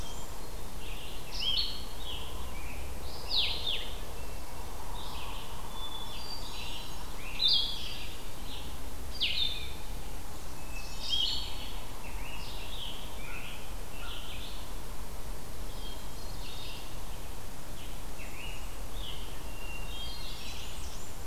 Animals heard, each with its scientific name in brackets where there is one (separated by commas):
Red-eyed Vireo (Vireo olivaceus), Hermit Thrush (Catharus guttatus), Scarlet Tanager (Piranga olivacea), Blue-headed Vireo (Vireo solitarius), Blackburnian Warbler (Setophaga fusca)